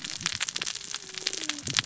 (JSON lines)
{"label": "biophony, cascading saw", "recorder": "SoundTrap 600 or HydroMoth"}